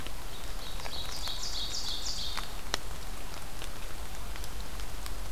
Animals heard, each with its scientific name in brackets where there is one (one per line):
Ovenbird (Seiurus aurocapilla)